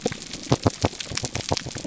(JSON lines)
{"label": "biophony, pulse", "recorder": "SoundTrap 300"}